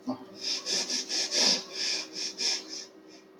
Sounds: Sniff